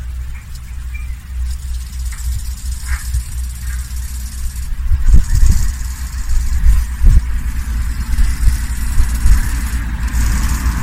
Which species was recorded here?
Chorthippus biguttulus